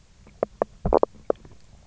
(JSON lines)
{"label": "biophony, knock croak", "recorder": "SoundTrap 300"}